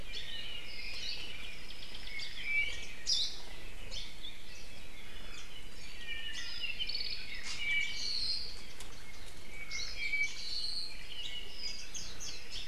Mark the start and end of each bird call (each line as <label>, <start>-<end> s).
Hawaii Creeper (Loxops mana), 0.0-0.4 s
Apapane (Himatione sanguinea), 0.2-2.3 s
Hawaii Akepa (Loxops coccineus), 3.0-3.6 s
Hawaii Creeper (Loxops mana), 3.8-4.2 s
Warbling White-eye (Zosterops japonicus), 5.3-5.6 s
Apapane (Himatione sanguinea), 5.9-8.7 s
Iiwi (Drepanis coccinea), 7.4-7.7 s
Apapane (Himatione sanguinea), 9.4-11.0 s
Hawaii Creeper (Loxops mana), 9.7-10.1 s
Warbling White-eye (Zosterops japonicus), 11.6-12.5 s